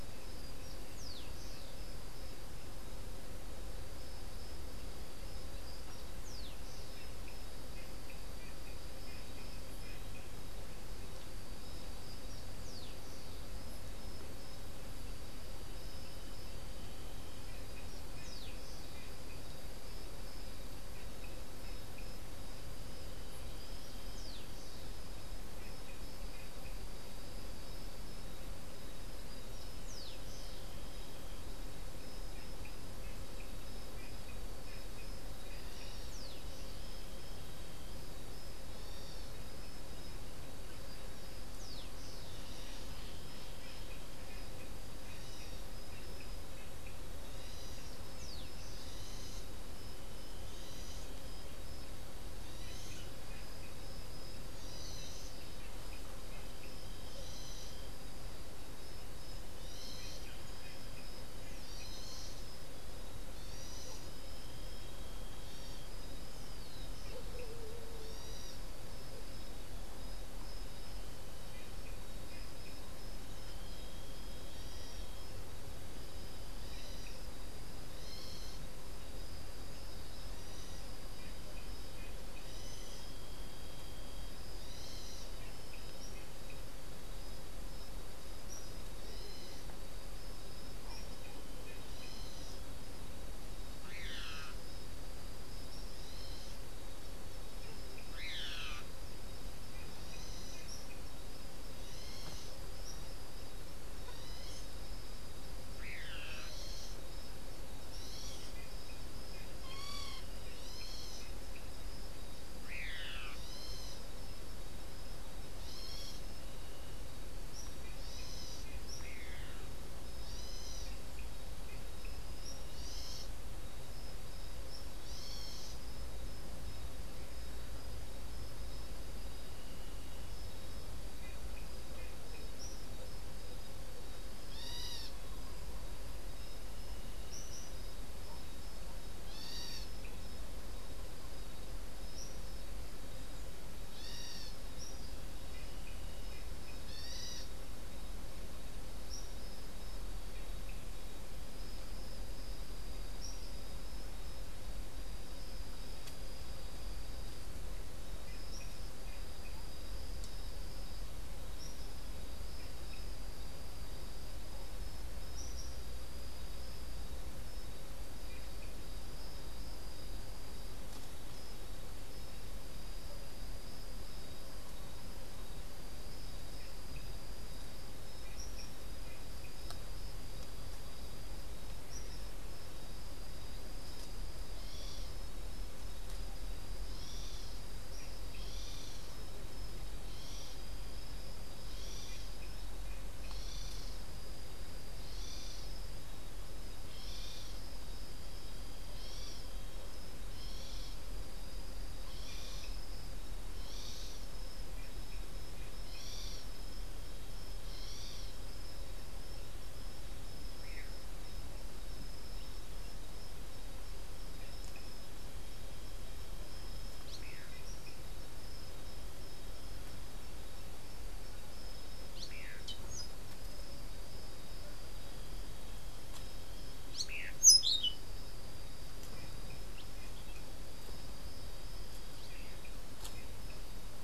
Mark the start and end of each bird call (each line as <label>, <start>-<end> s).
Rufous-collared Sparrow (Zonotrichia capensis), 0.8-2.0 s
Rufous-collared Sparrow (Zonotrichia capensis), 5.8-7.1 s
Rufous-collared Sparrow (Zonotrichia capensis), 12.3-13.5 s
Rufous-collared Sparrow (Zonotrichia capensis), 17.9-19.2 s
Rufous-collared Sparrow (Zonotrichia capensis), 23.5-24.9 s
Rufous-collared Sparrow (Zonotrichia capensis), 29.2-30.7 s
unidentified bird, 35.4-36.2 s
Rufous-collared Sparrow (Zonotrichia capensis), 35.5-36.8 s
unidentified bird, 38.7-39.4 s
Rufous-collared Sparrow (Zonotrichia capensis), 41.2-42.3 s
unidentified bird, 42.2-43.1 s
unidentified bird, 44.8-45.9 s
unidentified bird, 47.0-48.1 s
Rufous-collared Sparrow (Zonotrichia capensis), 47.7-49.2 s
unidentified bird, 48.6-49.7 s
unidentified bird, 50.2-51.3 s
unidentified bird, 52.2-53.3 s
unidentified bird, 54.5-55.4 s
unidentified bird, 57.0-57.9 s
unidentified bird, 59.5-60.3 s
unidentified bird, 61.5-62.3 s
unidentified bird, 63.3-64.2 s
unidentified bird, 65.2-66.0 s
unidentified bird, 68.0-68.9 s
unidentified bird, 76.4-77.3 s
unidentified bird, 77.8-78.7 s
unidentified bird, 82.3-83.1 s
unidentified bird, 84.5-85.4 s
unidentified bird, 91.8-92.6 s
unidentified bird, 93.7-94.7 s
unidentified bird, 95.8-96.6 s
unidentified bird, 98.0-98.9 s
unidentified bird, 99.9-100.8 s
Tropical Kingbird (Tyrannus melancholicus), 100.6-100.9 s
unidentified bird, 101.7-102.6 s
Tropical Kingbird (Tyrannus melancholicus), 102.6-103.4 s
unidentified bird, 103.9-104.8 s
unidentified bird, 105.8-107.0 s
unidentified bird, 107.8-108.7 s
unidentified bird, 113.2-114.1 s
unidentified bird, 115.4-116.3 s
Tropical Kingbird (Tyrannus melancholicus), 117.5-117.8 s
unidentified bird, 117.9-118.7 s
Tropical Kingbird (Tyrannus melancholicus), 118.8-119.1 s
unidentified bird, 120.1-121.0 s
Tropical Kingbird (Tyrannus melancholicus), 122.3-122.6 s
unidentified bird, 122.6-123.4 s
Tropical Kingbird (Tyrannus melancholicus), 124.6-124.9 s
unidentified bird, 125.0-125.9 s
Tropical Kingbird (Tyrannus melancholicus), 132.5-132.8 s
unidentified bird, 134.4-135.3 s
Tropical Kingbird (Tyrannus melancholicus), 137.3-137.6 s
unidentified bird, 139.1-140.0 s
Tropical Kingbird (Tyrannus melancholicus), 142.1-142.5 s
unidentified bird, 143.8-144.7 s
unidentified bird, 146.8-147.6 s
Tropical Kingbird (Tyrannus melancholicus), 149.0-149.3 s
Tropical Kingbird (Tyrannus melancholicus), 153.2-153.5 s
Tropical Kingbird (Tyrannus melancholicus), 158.4-158.7 s
Tropical Kingbird (Tyrannus melancholicus), 161.5-161.8 s
unidentified bird, 181.8-182.4 s
unidentified bird, 184.4-185.1 s
unidentified bird, 186.8-187.5 s
unidentified bird, 188.3-189.0 s
unidentified bird, 190.0-190.7 s
unidentified bird, 191.6-192.3 s
unidentified bird, 193.2-193.9 s
unidentified bird, 195.0-195.7 s
unidentified bird, 196.9-197.6 s
unidentified bird, 198.9-199.6 s
unidentified bird, 200.3-201.0 s
unidentified bird, 202.1-202.8 s
unidentified bird, 203.6-204.3 s
unidentified bird, 205.8-206.5 s
unidentified bird, 207.6-208.3 s
Orange-billed Nightingale-Thrush (Catharus aurantiirostris), 216.8-218.0 s
Orange-billed Nightingale-Thrush (Catharus aurantiirostris), 222.0-223.3 s
Orange-billed Nightingale-Thrush (Catharus aurantiirostris), 226.7-228.0 s